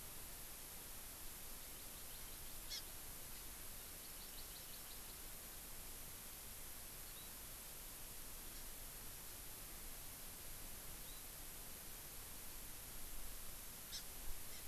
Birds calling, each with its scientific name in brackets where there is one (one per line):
Hawaii Amakihi (Chlorodrepanis virens)